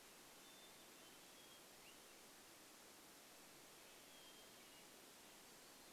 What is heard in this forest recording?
Hermit Thrush song